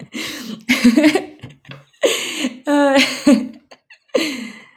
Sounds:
Laughter